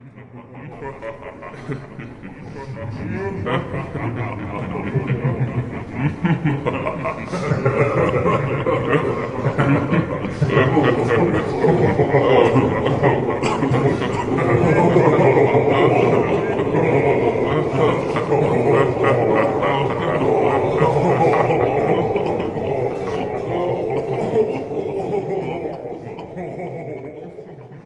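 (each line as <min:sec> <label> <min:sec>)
0:00.1 A man is coughing. 0:27.9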